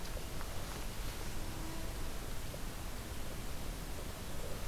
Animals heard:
forest ambience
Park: Hubbard Brook Experimental Forest